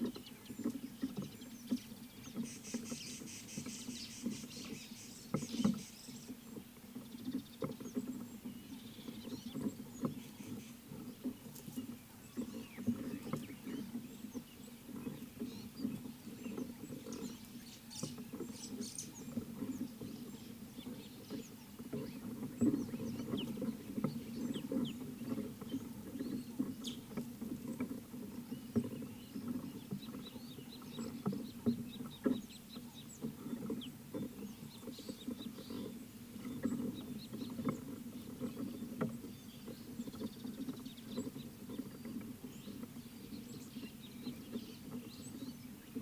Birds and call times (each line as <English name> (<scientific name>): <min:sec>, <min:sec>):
Rattling Cisticola (Cisticola chiniana): 0:03.3
White-browed Sparrow-Weaver (Plocepasser mahali): 0:18.0
Scarlet-chested Sunbird (Chalcomitra senegalensis): 0:24.5, 0:30.7, 0:37.2